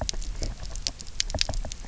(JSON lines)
{"label": "biophony, knock", "recorder": "SoundTrap 300"}